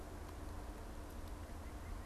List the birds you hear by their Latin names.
Sitta carolinensis